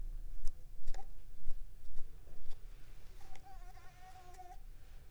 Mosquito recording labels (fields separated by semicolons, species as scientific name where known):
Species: Coquillettidia sp.; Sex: female; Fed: unfed; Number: one; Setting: cup